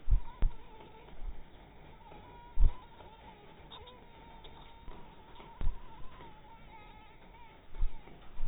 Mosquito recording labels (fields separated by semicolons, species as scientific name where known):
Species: mosquito; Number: one; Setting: cup